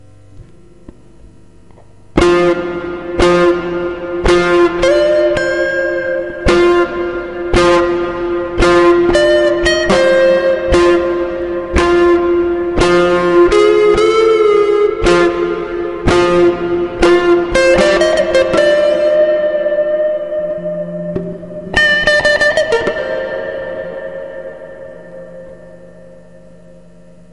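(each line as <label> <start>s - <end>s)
An electric guitar plays loudly and irregularly with heavy distortion, echo, and reverb. 2.2s - 26.8s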